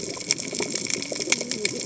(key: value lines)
label: biophony, cascading saw
recorder: HydroMoth